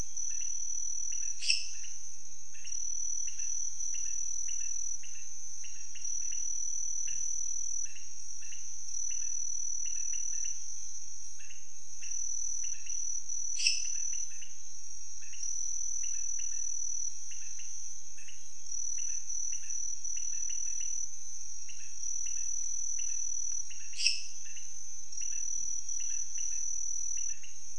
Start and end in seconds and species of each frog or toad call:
0.0	27.7	Leptodactylus podicipinus
1.3	2.0	Dendropsophus minutus
13.4	14.1	Dendropsophus minutus
23.8	24.6	Dendropsophus minutus
Brazil, 11:15pm

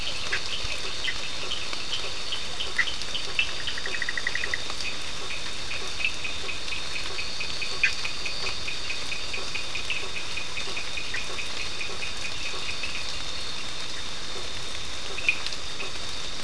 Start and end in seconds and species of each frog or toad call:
0.0	16.4	Boana faber
0.3	4.7	Boana bischoffi
3.8	13.2	Sphaenorhynchus surdus
7.8	8.0	Boana bischoffi
15.0	16.4	Sphaenorhynchus surdus
Brazil, 10:15pm

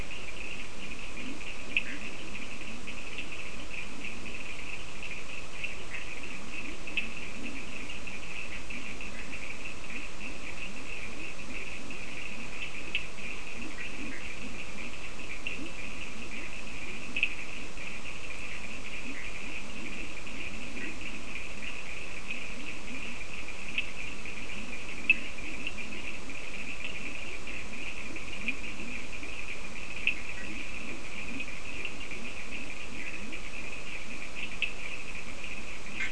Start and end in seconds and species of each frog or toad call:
0.0	36.1	Leptodactylus latrans
0.0	36.1	Sphaenorhynchus surdus
1.8	2.1	Boana bischoffi
19.0	19.4	Boana bischoffi
20.7	21.0	Boana bischoffi
30.3	30.7	Boana bischoffi
Brazil, 4:00am

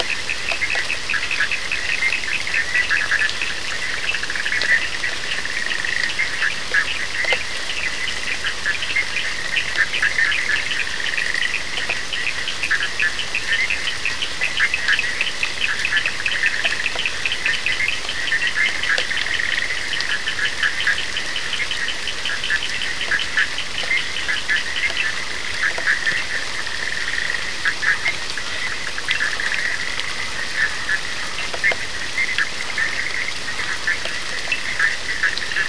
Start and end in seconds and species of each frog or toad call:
0.0	25.5	Sphaenorhynchus surdus
0.0	35.6	Boana bischoffi
Brazil, 1:15am

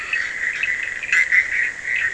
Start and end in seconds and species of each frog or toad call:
0.0	0.5	Boana leptolineata
0.0	2.1	Boana bischoffi
0.0	2.1	Scinax perereca
0.0	2.1	Sphaenorhynchus surdus
Brazil, 1:30am

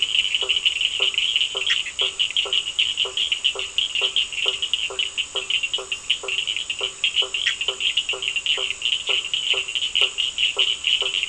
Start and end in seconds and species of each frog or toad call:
0.0	11.2	Boana faber
0.0	11.2	Sphaenorhynchus surdus
1.7	1.9	Boana bischoffi
7.4	7.6	Boana bischoffi
Brazil, 8:15pm

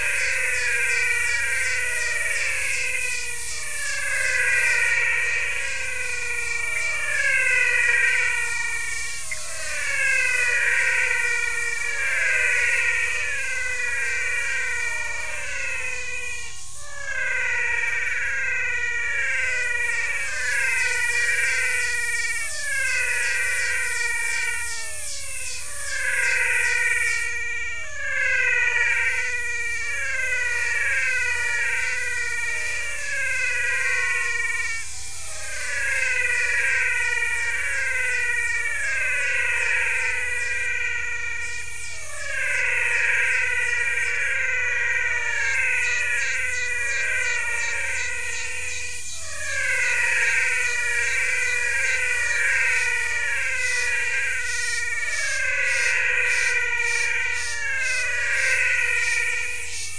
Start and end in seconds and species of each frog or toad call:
0.0	59.9	Physalaemus albonotatus
0.7	20.4	Phyllomedusa sauvagii
9.2	9.5	Pithecopus azureus
Brazil, 6:30pm

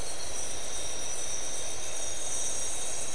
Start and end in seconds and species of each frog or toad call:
none
Brazil, 2:00am

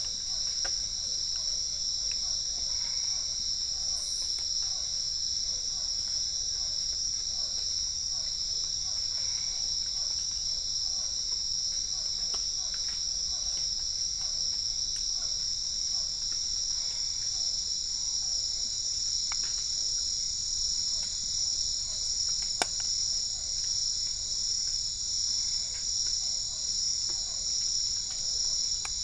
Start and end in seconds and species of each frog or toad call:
0.0	29.0	Physalaemus cuvieri
2.4	3.4	Boana albopunctata
9.0	9.8	Boana albopunctata
16.6	17.6	Boana albopunctata
25.2	26.0	Boana albopunctata
Brazil, 7:15pm

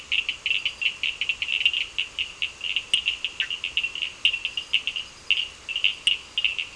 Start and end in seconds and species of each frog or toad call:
0.1	6.7	Sphaenorhynchus surdus
3.3	3.5	Boana bischoffi
Brazil, 7:45pm

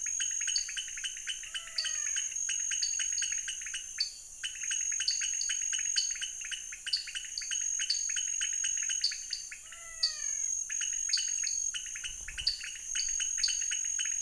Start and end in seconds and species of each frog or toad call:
0.0	13.6	Dendropsophus nanus
0.0	14.2	Leptodactylus podicipinus
1.4	2.3	Physalaemus albonotatus
9.5	10.6	Physalaemus albonotatus
Brazil, 7:00pm

